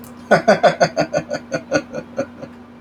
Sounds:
Laughter